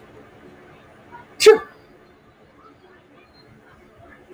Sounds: Sneeze